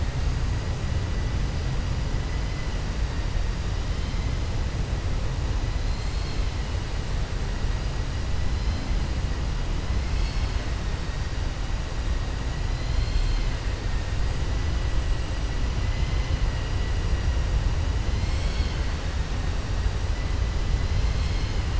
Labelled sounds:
12.7	13.5	vessel noise, 2.0 to 5.1 kHz

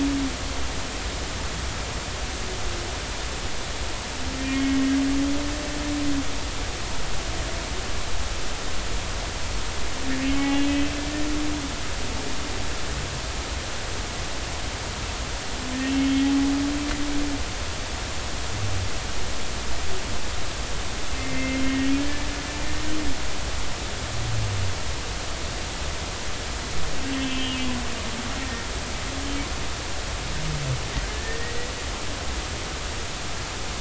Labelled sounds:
4.4	5.8	humpback whale, 1.8 to 2.3 kHz
10.4	10.9	humpback whale, 0.80 to 3.2 kHz
21.2	22.3	humpback whale, 1.7 to 2.2 kHz
27.1	27.6	humpback whale, 2.6 to 3.3 kHz
28.4	28.7	humpback whale, 1.8 to 1.9 kHz
31.1	31.6	humpback whale, 1.7 to 2.0 kHz

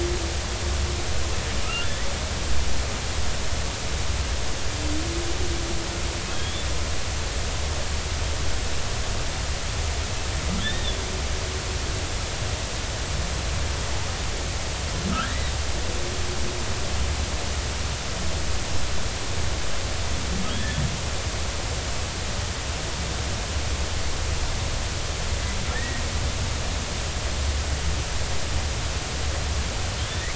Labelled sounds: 1.6	1.9	humpback whale, 1.2 to 3.0 kHz
6.3	6.7	humpback whale, 3.2 to 3.6 kHz
10.6	11.0	humpback whale, 1.6 to 3.7 kHz
15.1	15.5	humpback whale, 1.2 to 2.1 kHz
25.7	26.0	humpback whale, 1.7 to 2.0 kHz
30.0	30.3	humpback whale, 1.6 to 3.7 kHz

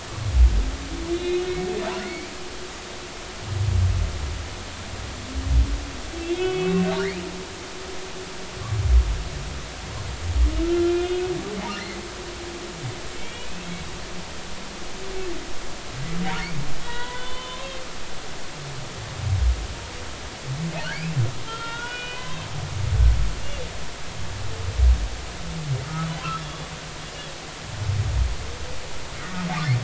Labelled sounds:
1.1	2.3	humpback whale, 1.7 to 4.0 kHz
6.3	6.9	humpback whale, 2.1 to 3.4 kHz
10.6	11.3	humpback whale, 1.3 to 2.9 kHz
13.1	13.7	humpback whale, 2.2 to 3.4 kHz
16.8	17.8	humpback whale, 0.90 to 4.0 kHz
20.9	22.4	humpback whale, 0.96 to 3.8 kHz
25.8	26.7	humpback whale, 1.2 to 3.6 kHz

